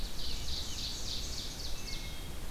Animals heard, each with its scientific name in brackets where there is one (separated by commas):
Ovenbird (Seiurus aurocapilla), Wood Thrush (Hylocichla mustelina), Scarlet Tanager (Piranga olivacea)